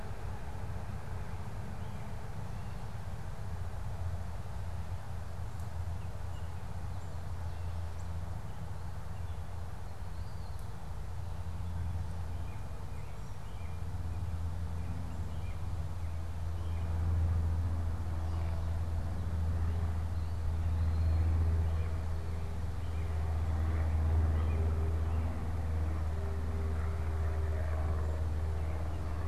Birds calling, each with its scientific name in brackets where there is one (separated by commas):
Eastern Wood-Pewee (Contopus virens), American Robin (Turdus migratorius)